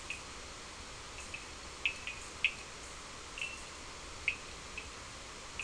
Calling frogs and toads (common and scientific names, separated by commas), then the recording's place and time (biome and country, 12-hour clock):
Cochran's lime tree frog (Sphaenorhynchus surdus)
Atlantic Forest, Brazil, 5:00am